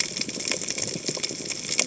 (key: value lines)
label: biophony, cascading saw
recorder: HydroMoth